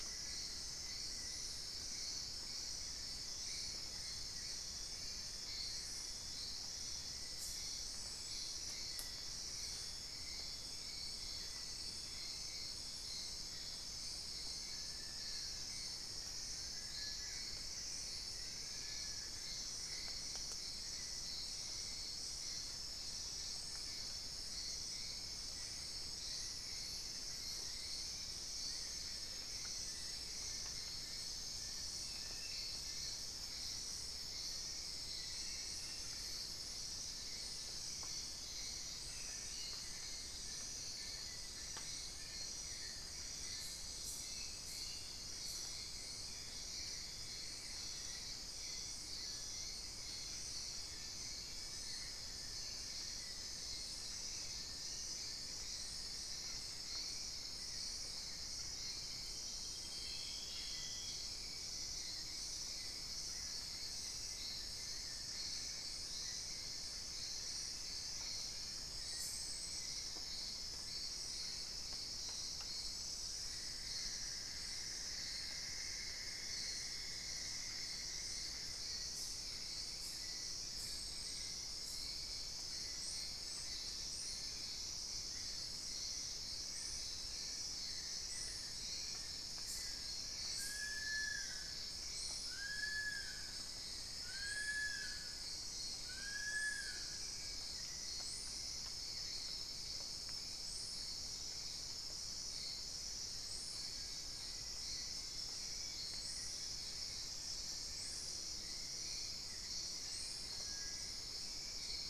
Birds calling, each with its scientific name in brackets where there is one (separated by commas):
Cinereous Tinamou (Crypturellus cinereus), Plain-winged Antshrike (Thamnophilus schistaceus), Black-faced Antthrush (Formicarius analis), Long-billed Woodcreeper (Nasica longirostris), unidentified bird, Wing-barred Piprites (Piprites chloris), Cinnamon-throated Woodcreeper (Dendrexetastes rufigula)